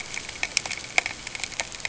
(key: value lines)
label: ambient
recorder: HydroMoth